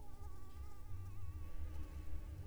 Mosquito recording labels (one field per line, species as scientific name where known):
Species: Anopheles arabiensis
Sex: female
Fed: unfed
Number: one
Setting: cup